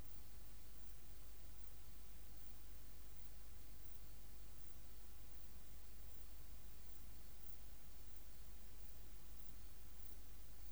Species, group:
Pterolepis spoliata, Orthoptera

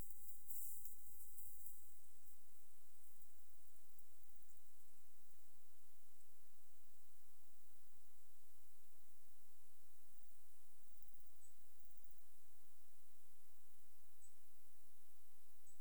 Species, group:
Metaplastes ornatus, Orthoptera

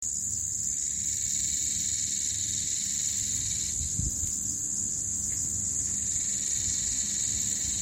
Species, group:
Psaltoda harrisii, Cicadidae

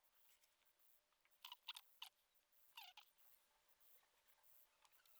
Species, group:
Platycleis affinis, Orthoptera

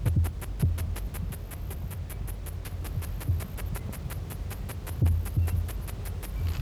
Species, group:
Kikihia muta, Cicadidae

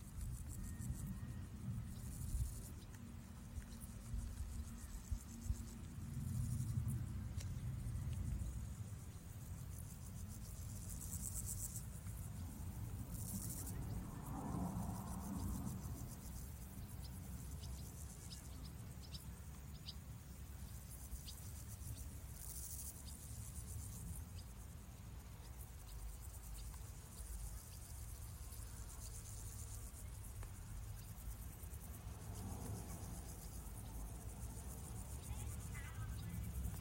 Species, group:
Pseudochorthippus parallelus, Orthoptera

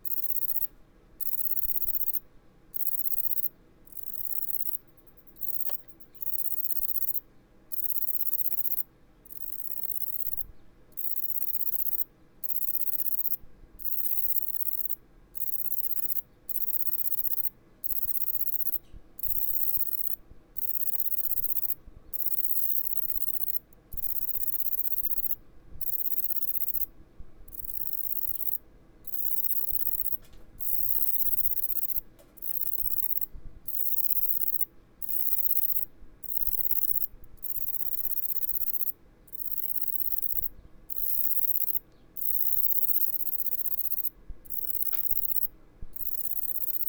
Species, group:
Bicolorana bicolor, Orthoptera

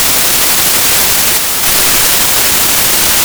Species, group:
Poecilimon veluchianus, Orthoptera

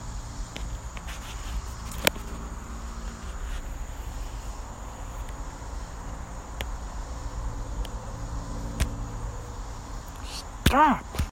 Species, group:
Neotibicen robinsonianus, Cicadidae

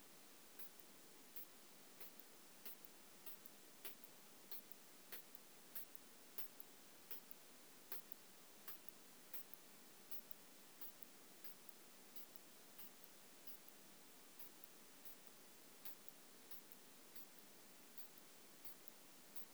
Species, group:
Isophya pyrenaea, Orthoptera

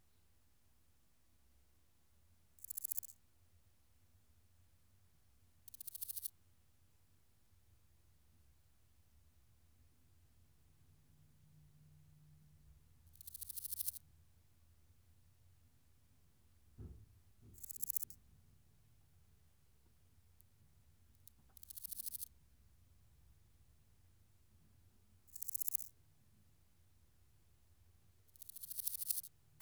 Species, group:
Chrysochraon dispar, Orthoptera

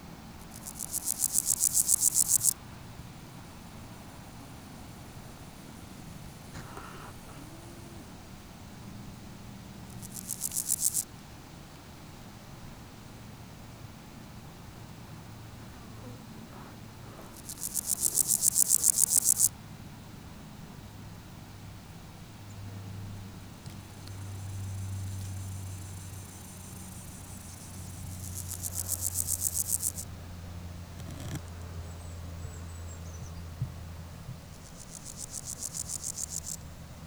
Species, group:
Pseudochorthippus parallelus, Orthoptera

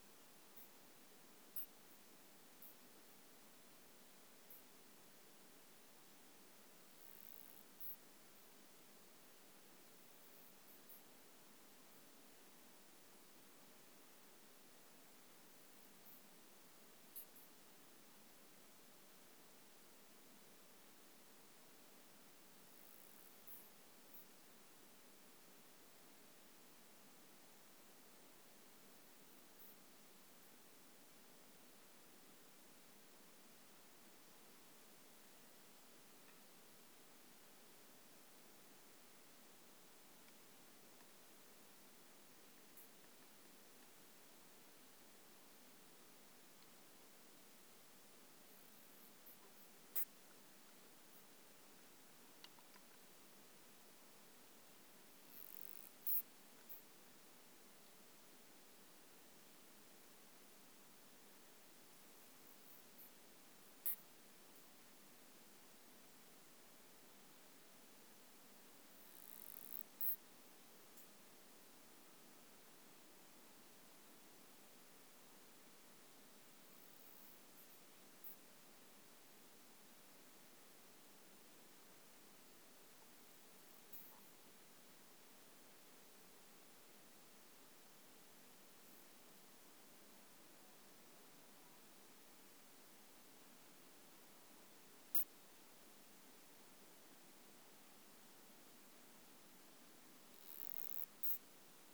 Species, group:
Isophya speciosa, Orthoptera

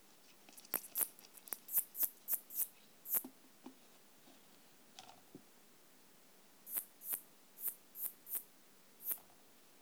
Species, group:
Poecilimon nonveilleri, Orthoptera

